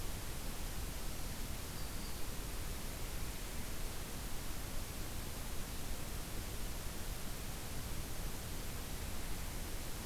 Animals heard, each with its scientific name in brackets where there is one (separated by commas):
Black-throated Green Warbler (Setophaga virens)